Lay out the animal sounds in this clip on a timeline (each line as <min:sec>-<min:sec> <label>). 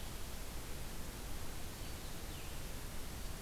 0:01.6-0:03.4 Red-eyed Vireo (Vireo olivaceus)